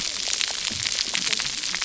{"label": "biophony, cascading saw", "recorder": "SoundTrap 300"}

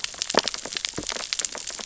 {"label": "biophony, sea urchins (Echinidae)", "recorder": "SoundTrap 600 or HydroMoth"}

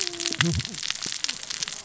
{"label": "biophony, cascading saw", "recorder": "SoundTrap 600 or HydroMoth"}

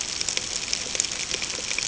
{"label": "ambient", "recorder": "HydroMoth"}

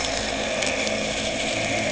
{"label": "anthrophony, boat engine", "recorder": "HydroMoth"}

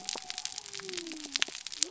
{"label": "biophony", "recorder": "SoundTrap 300"}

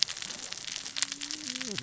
{"label": "biophony, cascading saw", "recorder": "SoundTrap 600 or HydroMoth"}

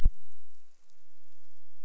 {"label": "biophony", "recorder": "SoundTrap 300"}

